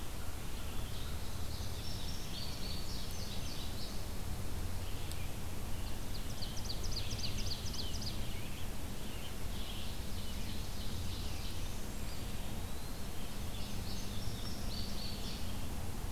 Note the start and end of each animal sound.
[0.00, 0.82] American Crow (Corvus brachyrhynchos)
[0.00, 15.77] Red-eyed Vireo (Vireo olivaceus)
[1.29, 4.14] Indigo Bunting (Passerina cyanea)
[4.86, 7.33] American Robin (Turdus migratorius)
[5.73, 8.50] Ovenbird (Seiurus aurocapilla)
[7.17, 9.38] Rose-breasted Grosbeak (Pheucticus ludovicianus)
[9.87, 11.76] Ovenbird (Seiurus aurocapilla)
[11.92, 13.25] Eastern Wood-Pewee (Contopus virens)
[13.21, 15.51] Indigo Bunting (Passerina cyanea)

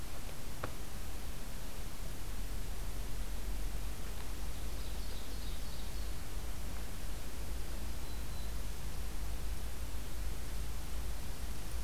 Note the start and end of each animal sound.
[4.24, 6.42] Ovenbird (Seiurus aurocapilla)
[7.83, 8.70] Black-throated Green Warbler (Setophaga virens)

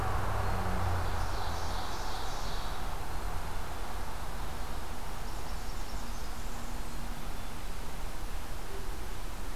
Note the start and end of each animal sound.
[0.75, 3.20] Ovenbird (Seiurus aurocapilla)
[4.89, 7.06] Blackburnian Warbler (Setophaga fusca)

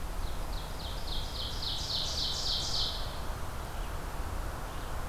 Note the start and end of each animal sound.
[0.00, 3.28] Ovenbird (Seiurus aurocapilla)
[3.43, 5.09] Red-eyed Vireo (Vireo olivaceus)

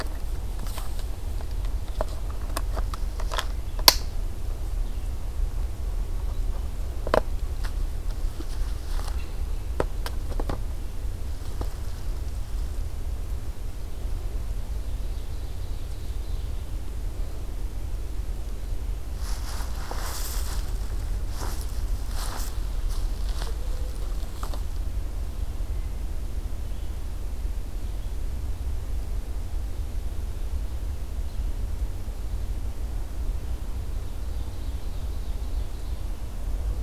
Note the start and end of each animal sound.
[14.66, 16.74] Ovenbird (Seiurus aurocapilla)
[25.12, 28.34] Red-eyed Vireo (Vireo olivaceus)
[33.55, 36.31] Ovenbird (Seiurus aurocapilla)

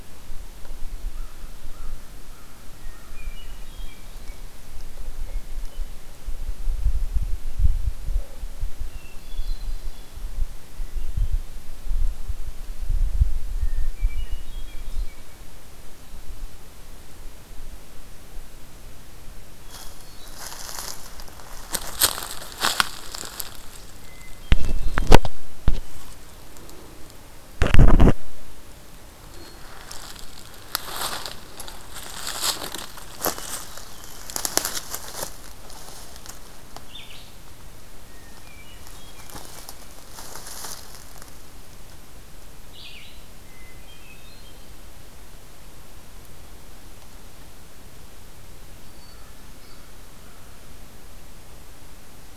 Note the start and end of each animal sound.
[0.89, 3.32] American Crow (Corvus brachyrhynchos)
[3.02, 4.41] Hermit Thrush (Catharus guttatus)
[5.24, 6.01] Hermit Thrush (Catharus guttatus)
[8.71, 10.36] Hermit Thrush (Catharus guttatus)
[10.76, 11.38] Hermit Thrush (Catharus guttatus)
[13.30, 15.34] Hermit Thrush (Catharus guttatus)
[19.53, 20.77] Hermit Thrush (Catharus guttatus)
[23.89, 25.26] Hermit Thrush (Catharus guttatus)
[29.10, 30.17] Hermit Thrush (Catharus guttatus)
[33.06, 34.26] Hermit Thrush (Catharus guttatus)
[36.66, 37.52] Red-eyed Vireo (Vireo olivaceus)
[37.85, 39.72] Hermit Thrush (Catharus guttatus)
[42.58, 43.24] Red-eyed Vireo (Vireo olivaceus)
[43.21, 44.78] Hermit Thrush (Catharus guttatus)
[48.73, 49.77] Hermit Thrush (Catharus guttatus)

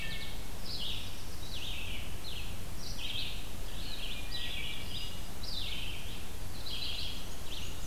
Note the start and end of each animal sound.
[0.00, 7.86] Red-eyed Vireo (Vireo olivaceus)
[0.48, 1.90] Black-throated Blue Warbler (Setophaga caerulescens)
[4.26, 5.34] Hermit Thrush (Catharus guttatus)
[6.46, 7.86] Black-and-white Warbler (Mniotilta varia)

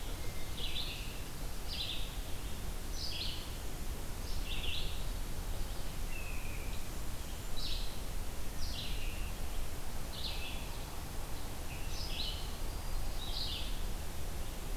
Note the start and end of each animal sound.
[0.00, 1.25] Hermit Thrush (Catharus guttatus)
[0.52, 14.76] Red-eyed Vireo (Vireo olivaceus)
[5.89, 6.87] unidentified call

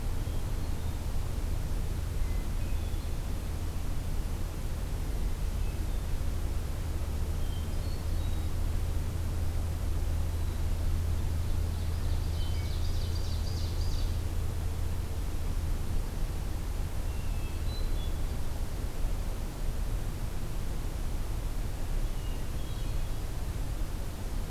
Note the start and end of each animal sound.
[0.00, 1.20] Hermit Thrush (Catharus guttatus)
[2.31, 3.12] Hermit Thrush (Catharus guttatus)
[4.66, 6.30] Hermit Thrush (Catharus guttatus)
[7.16, 8.59] Hermit Thrush (Catharus guttatus)
[10.25, 11.15] Hermit Thrush (Catharus guttatus)
[11.35, 14.39] Ovenbird (Seiurus aurocapilla)
[16.69, 18.58] Hermit Thrush (Catharus guttatus)
[21.89, 23.37] Hermit Thrush (Catharus guttatus)

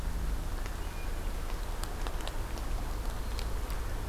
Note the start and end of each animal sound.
[0.49, 1.43] Hermit Thrush (Catharus guttatus)

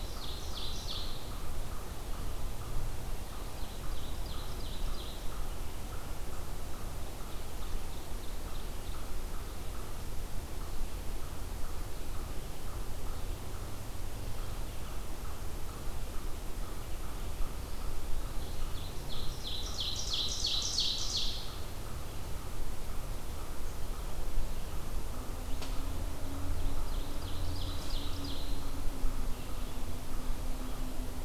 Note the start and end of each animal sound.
[0.00, 1.36] Ovenbird (Seiurus aurocapilla)
[0.00, 25.56] unknown mammal
[3.13, 5.41] Ovenbird (Seiurus aurocapilla)
[7.08, 9.13] Ovenbird (Seiurus aurocapilla)
[17.85, 21.52] Ovenbird (Seiurus aurocapilla)
[26.37, 28.85] Ovenbird (Seiurus aurocapilla)

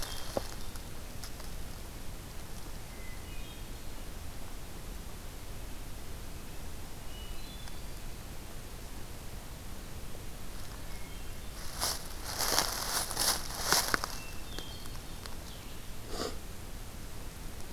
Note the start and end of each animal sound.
[2.68, 4.12] Hermit Thrush (Catharus guttatus)
[6.83, 8.14] Hermit Thrush (Catharus guttatus)
[10.62, 11.64] Hermit Thrush (Catharus guttatus)
[14.09, 15.16] Hermit Thrush (Catharus guttatus)

